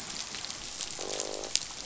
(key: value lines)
label: biophony, croak
recorder: SoundTrap 500